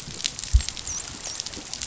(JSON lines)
{"label": "biophony, dolphin", "recorder": "SoundTrap 500"}